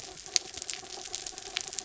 {"label": "anthrophony, mechanical", "recorder": "SoundTrap 300"}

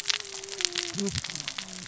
{"label": "biophony, cascading saw", "recorder": "SoundTrap 600 or HydroMoth"}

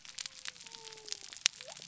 {"label": "biophony", "recorder": "SoundTrap 300"}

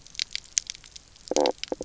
{"label": "biophony, knock croak", "recorder": "SoundTrap 300"}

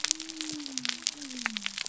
{"label": "biophony", "recorder": "SoundTrap 300"}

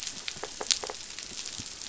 {"label": "biophony", "recorder": "SoundTrap 500"}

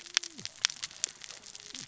{"label": "biophony, cascading saw", "recorder": "SoundTrap 600 or HydroMoth"}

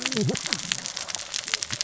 {"label": "biophony, cascading saw", "recorder": "SoundTrap 600 or HydroMoth"}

